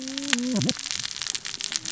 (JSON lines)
{"label": "biophony, cascading saw", "recorder": "SoundTrap 600 or HydroMoth"}